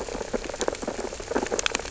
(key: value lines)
label: biophony, sea urchins (Echinidae)
recorder: SoundTrap 600 or HydroMoth